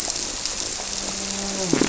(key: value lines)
label: biophony
recorder: SoundTrap 300

label: biophony, grouper
recorder: SoundTrap 300